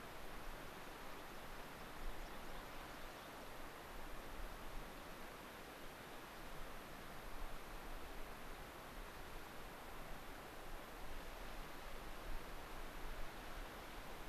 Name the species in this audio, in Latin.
Anthus rubescens